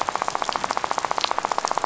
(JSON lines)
{"label": "biophony, rattle", "recorder": "SoundTrap 500"}